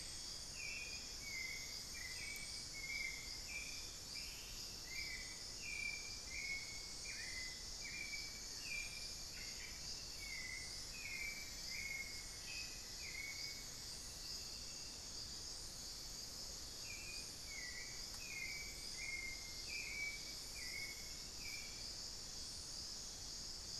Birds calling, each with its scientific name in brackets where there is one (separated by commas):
Ash-throated Gnateater (Conopophaga peruviana), Hauxwell's Thrush (Turdus hauxwelli), Cinnamon-throated Woodcreeper (Dendrexetastes rufigula), unidentified bird